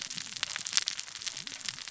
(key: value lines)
label: biophony, cascading saw
recorder: SoundTrap 600 or HydroMoth